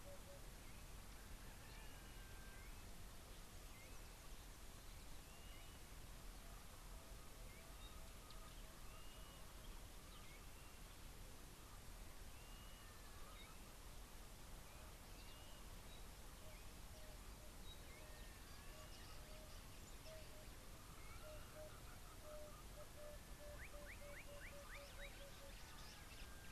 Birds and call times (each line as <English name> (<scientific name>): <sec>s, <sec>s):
Blue-naped Mousebird (Urocolius macrourus): 5.5s, 9.0s
Pygmy Batis (Batis perkeo): 17.7s
Emerald-spotted Wood-Dove (Turtur chalcospilos): 22.3s
Slate-colored Boubou (Laniarius funebris): 24.4s